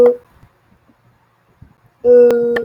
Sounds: Sniff